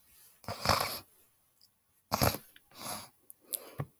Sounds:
Throat clearing